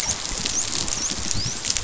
{"label": "biophony, dolphin", "recorder": "SoundTrap 500"}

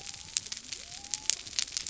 {"label": "biophony", "recorder": "SoundTrap 300"}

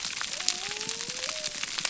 {"label": "biophony", "recorder": "SoundTrap 300"}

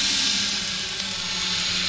{"label": "anthrophony, boat engine", "recorder": "SoundTrap 500"}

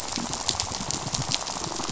{"label": "biophony, rattle", "recorder": "SoundTrap 500"}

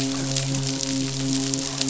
{"label": "biophony, midshipman", "recorder": "SoundTrap 500"}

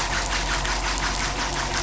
{"label": "anthrophony, boat engine", "recorder": "SoundTrap 500"}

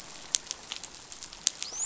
{"label": "biophony, dolphin", "recorder": "SoundTrap 500"}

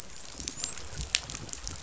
{"label": "biophony, dolphin", "recorder": "SoundTrap 500"}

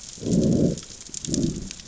{"label": "biophony, growl", "recorder": "SoundTrap 600 or HydroMoth"}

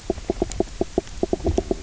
{"label": "biophony, knock croak", "recorder": "SoundTrap 300"}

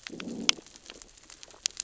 {"label": "biophony, growl", "recorder": "SoundTrap 600 or HydroMoth"}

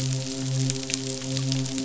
{"label": "biophony, midshipman", "recorder": "SoundTrap 500"}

